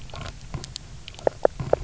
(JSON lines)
{"label": "biophony, knock croak", "recorder": "SoundTrap 300"}